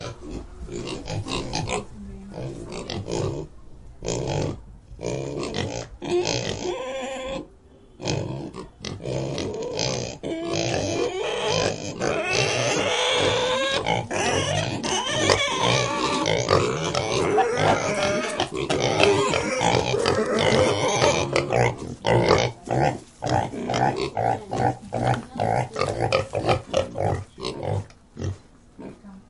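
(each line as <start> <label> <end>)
0.0 A pig grunts while people are talking. 28.4
29.0 A woman is speaking indistinctly. 29.3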